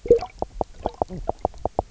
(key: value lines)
label: biophony, knock croak
recorder: SoundTrap 300